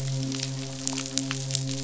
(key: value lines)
label: biophony, midshipman
recorder: SoundTrap 500